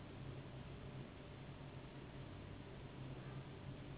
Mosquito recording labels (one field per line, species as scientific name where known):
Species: Anopheles gambiae s.s.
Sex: female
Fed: unfed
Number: one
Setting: insect culture